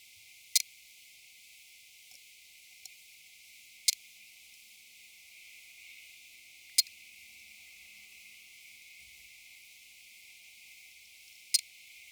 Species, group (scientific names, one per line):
Leptophyes punctatissima
Orthoptera